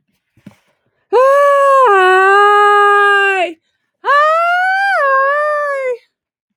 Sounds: Sigh